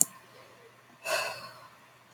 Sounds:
Sigh